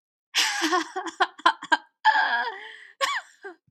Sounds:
Laughter